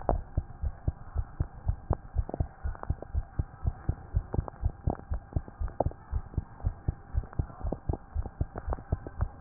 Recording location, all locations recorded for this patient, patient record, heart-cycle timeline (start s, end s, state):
tricuspid valve (TV)
aortic valve (AV)+pulmonary valve (PV)+tricuspid valve (TV)+tricuspid valve (TV)+mitral valve (MV)
#Age: Child
#Sex: Male
#Height: 111.0 cm
#Weight: 24.0 kg
#Pregnancy status: False
#Murmur: Absent
#Murmur locations: nan
#Most audible location: nan
#Systolic murmur timing: nan
#Systolic murmur shape: nan
#Systolic murmur grading: nan
#Systolic murmur pitch: nan
#Systolic murmur quality: nan
#Diastolic murmur timing: nan
#Diastolic murmur shape: nan
#Diastolic murmur grading: nan
#Diastolic murmur pitch: nan
#Diastolic murmur quality: nan
#Outcome: Normal
#Campaign: 2014 screening campaign
0.00	0.08	unannotated
0.08	0.21	S1
0.21	0.36	systole
0.36	0.46	S2
0.46	0.62	diastole
0.62	0.74	S1
0.74	0.86	systole
0.86	0.94	S2
0.94	1.14	diastole
1.14	1.26	S1
1.26	1.38	systole
1.38	1.48	S2
1.48	1.66	diastole
1.66	1.78	S1
1.78	1.88	systole
1.88	1.98	S2
1.98	2.16	diastole
2.16	2.26	S1
2.26	2.38	systole
2.38	2.48	S2
2.48	2.64	diastole
2.64	2.76	S1
2.76	2.88	systole
2.88	2.98	S2
2.98	3.14	diastole
3.14	3.26	S1
3.26	3.38	systole
3.38	3.46	S2
3.46	3.64	diastole
3.64	3.74	S1
3.74	3.88	systole
3.88	3.96	S2
3.96	4.14	diastole
4.14	4.24	S1
4.24	4.36	systole
4.36	4.46	S2
4.46	4.62	diastole
4.62	4.74	S1
4.74	4.86	systole
4.86	4.96	S2
4.96	5.10	diastole
5.10	5.22	S1
5.22	5.34	systole
5.34	5.44	S2
5.44	5.60	diastole
5.60	5.72	S1
5.72	5.84	systole
5.84	5.94	S2
5.94	6.12	diastole
6.12	6.24	S1
6.24	6.36	systole
6.36	6.44	S2
6.44	6.64	diastole
6.64	6.74	S1
6.74	6.86	systole
6.86	6.96	S2
6.96	7.14	diastole
7.14	7.26	S1
7.26	7.38	systole
7.38	7.48	S2
7.48	7.64	diastole
7.64	7.76	S1
7.76	7.88	systole
7.88	7.98	S2
7.98	8.16	diastole
8.16	8.26	S1
8.26	8.40	systole
8.40	8.48	S2
8.48	8.68	diastole
8.68	8.78	S1
8.78	8.90	systole
8.90	9.00	S2
9.00	9.20	diastole
9.20	9.41	unannotated